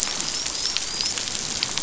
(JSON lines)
{"label": "biophony, dolphin", "recorder": "SoundTrap 500"}